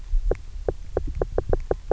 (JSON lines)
{"label": "biophony, knock", "recorder": "SoundTrap 300"}